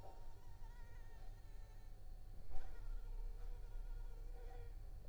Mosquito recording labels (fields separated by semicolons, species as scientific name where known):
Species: Anopheles arabiensis; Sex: female; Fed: unfed; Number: one; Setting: cup